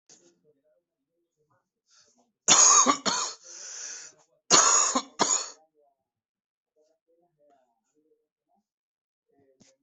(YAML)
expert_labels:
- quality: ok
  cough_type: dry
  dyspnea: false
  wheezing: false
  stridor: false
  choking: false
  congestion: false
  nothing: true
  diagnosis: upper respiratory tract infection
  severity: mild
age: 38
gender: male
respiratory_condition: false
fever_muscle_pain: false
status: symptomatic